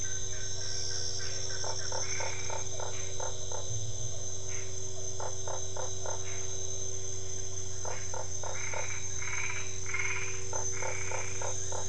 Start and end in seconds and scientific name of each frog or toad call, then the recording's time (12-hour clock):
1.6	3.6	Boana lundii
2.0	2.7	Boana albopunctata
5.2	6.2	Boana lundii
7.8	8.9	Boana lundii
8.5	11.5	Boana albopunctata
10.5	11.8	Boana lundii
7:00pm